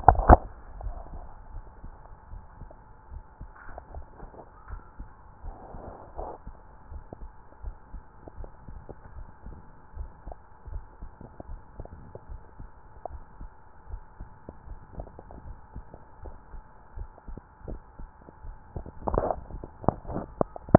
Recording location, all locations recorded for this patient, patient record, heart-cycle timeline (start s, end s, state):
mitral valve (MV)
aortic valve (AV)+tricuspid valve (TV)+mitral valve (MV)
#Age: nan
#Sex: Female
#Height: nan
#Weight: nan
#Pregnancy status: True
#Murmur: Absent
#Murmur locations: nan
#Most audible location: nan
#Systolic murmur timing: nan
#Systolic murmur shape: nan
#Systolic murmur grading: nan
#Systolic murmur pitch: nan
#Systolic murmur quality: nan
#Diastolic murmur timing: nan
#Diastolic murmur shape: nan
#Diastolic murmur grading: nan
#Diastolic murmur pitch: nan
#Diastolic murmur quality: nan
#Outcome: Normal
#Campaign: 2015 screening campaign
0.00	1.53	unannotated
1.53	1.66	S1
1.66	1.82	systole
1.82	1.94	S2
1.94	2.30	diastole
2.30	2.44	S1
2.44	2.60	systole
2.60	2.70	S2
2.70	3.12	diastole
3.12	3.24	S1
3.24	3.40	systole
3.40	3.52	S2
3.52	3.92	diastole
3.92	4.06	S1
4.06	4.22	systole
4.22	4.32	S2
4.32	4.68	diastole
4.68	4.82	S1
4.82	5.00	systole
5.00	5.10	S2
5.10	5.44	diastole
5.44	5.56	S1
5.56	5.74	systole
5.74	5.84	S2
5.84	6.16	diastole
6.16	6.28	S1
6.28	6.46	systole
6.46	6.56	S2
6.56	6.90	diastole
6.90	7.04	S1
7.04	7.22	systole
7.22	7.32	S2
7.32	7.62	diastole
7.62	7.76	S1
7.76	7.92	systole
7.92	8.02	S2
8.02	8.36	diastole
8.36	8.50	S1
8.50	8.68	systole
8.68	8.82	S2
8.82	9.14	diastole
9.14	9.28	S1
9.28	9.46	systole
9.46	9.58	S2
9.58	9.96	diastole
9.96	10.10	S1
10.10	10.26	systole
10.26	10.36	S2
10.36	10.68	diastole
10.68	10.86	S1
10.86	11.02	systole
11.02	11.12	S2
11.12	11.48	diastole
11.48	11.60	S1
11.60	11.78	systole
11.78	11.90	S2
11.90	12.30	diastole
12.30	12.42	S1
12.42	12.60	systole
12.60	12.70	S2
12.70	13.10	diastole
13.10	13.22	S1
13.22	13.40	systole
13.40	13.52	S2
13.52	13.90	diastole
13.90	14.04	S1
14.04	14.20	systole
14.20	14.30	S2
14.30	14.68	diastole
14.68	14.82	S1
14.82	14.98	systole
14.98	15.10	S2
15.10	15.44	diastole
15.44	15.58	S1
15.58	15.76	systole
15.76	15.86	S2
15.86	16.24	diastole
16.24	16.36	S1
16.36	16.52	systole
16.52	16.64	S2
16.64	16.96	diastole
16.96	17.12	S1
17.12	17.28	systole
17.28	17.38	S2
17.38	17.66	diastole
17.66	17.80	S1
17.80	18.00	systole
18.00	18.10	S2
18.10	18.44	diastole
18.44	18.56	S1
18.56	18.74	systole
18.74	18.85	S2
18.85	20.78	unannotated